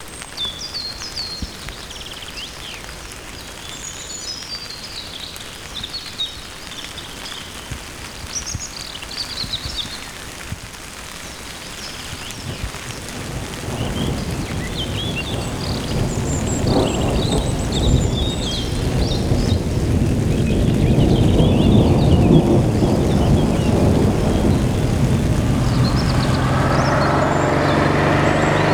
Are there birds outside?
yes